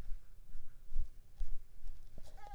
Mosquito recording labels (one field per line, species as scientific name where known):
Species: Mansonia uniformis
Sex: female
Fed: unfed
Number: one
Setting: cup